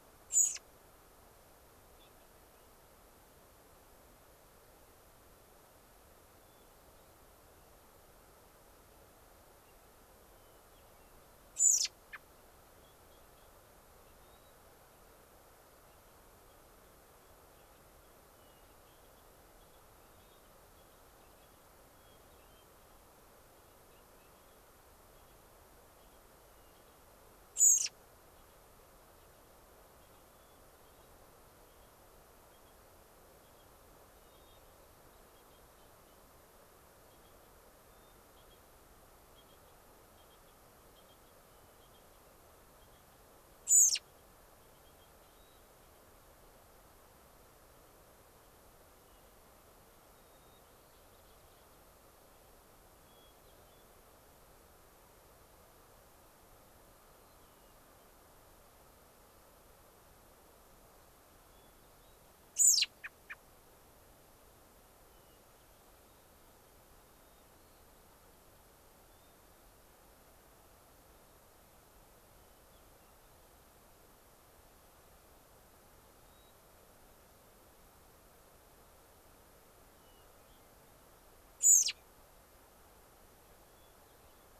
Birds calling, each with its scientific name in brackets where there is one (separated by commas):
White-crowned Sparrow (Zonotrichia leucophrys), unidentified bird, Hermit Thrush (Catharus guttatus), American Robin (Turdus migratorius)